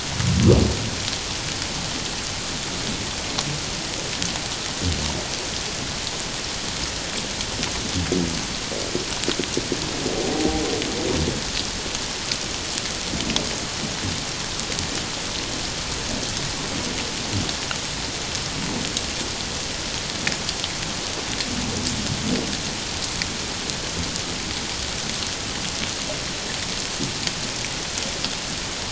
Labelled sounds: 10.2	10.6	humpback whale, 0.78 to 0.84 kHz

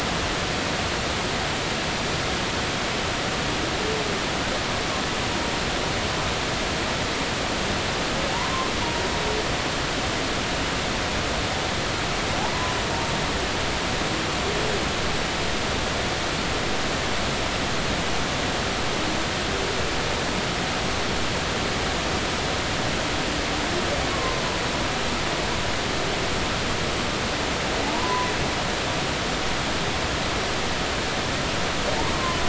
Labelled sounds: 24.1	24.4	humpback whale, 0.99 to 1.2 kHz
27.8	28.3	humpback whale, 0.80 to 1.1 kHz

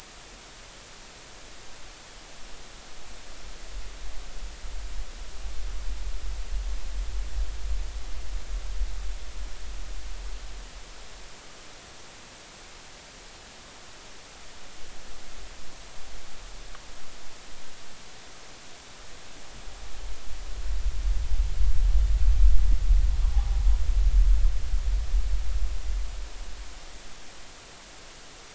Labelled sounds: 23.3	23.6	metallic clang, 0.80 to 0.86 kHz

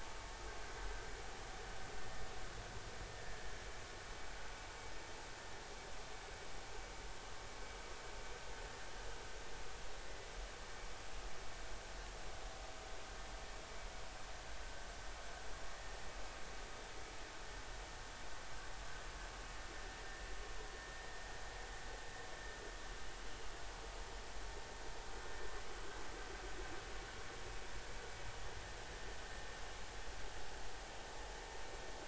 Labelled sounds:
3.1	3.4	vessel noise, 1.7 to 1.8 kHz

